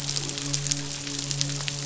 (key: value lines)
label: biophony, midshipman
recorder: SoundTrap 500